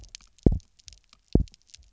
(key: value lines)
label: biophony, double pulse
recorder: SoundTrap 300